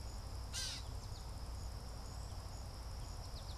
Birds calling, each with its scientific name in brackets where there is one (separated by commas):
American Goldfinch (Spinus tristis), Gray Catbird (Dumetella carolinensis)